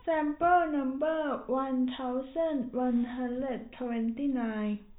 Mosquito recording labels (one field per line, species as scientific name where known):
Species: no mosquito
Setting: cup